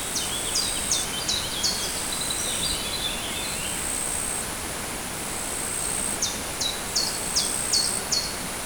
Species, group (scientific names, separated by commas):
Pteronemobius heydenii, Orthoptera